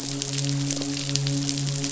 {"label": "biophony, midshipman", "recorder": "SoundTrap 500"}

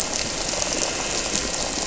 {"label": "anthrophony, boat engine", "recorder": "SoundTrap 300"}
{"label": "biophony", "recorder": "SoundTrap 300"}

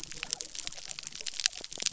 {"label": "biophony", "recorder": "SoundTrap 300"}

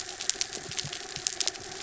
{"label": "anthrophony, mechanical", "recorder": "SoundTrap 300"}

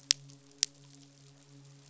{"label": "biophony, midshipman", "recorder": "SoundTrap 500"}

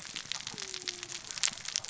{"label": "biophony, cascading saw", "recorder": "SoundTrap 600 or HydroMoth"}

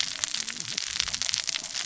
{"label": "biophony, cascading saw", "recorder": "SoundTrap 600 or HydroMoth"}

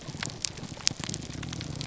{"label": "biophony, grouper groan", "recorder": "SoundTrap 300"}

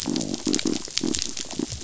{"label": "biophony", "recorder": "SoundTrap 500"}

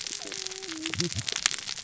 {"label": "biophony, cascading saw", "recorder": "SoundTrap 600 or HydroMoth"}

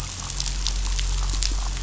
{"label": "anthrophony, boat engine", "recorder": "SoundTrap 500"}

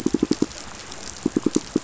{"label": "biophony, pulse", "recorder": "SoundTrap 500"}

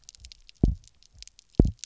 {"label": "biophony, double pulse", "recorder": "SoundTrap 300"}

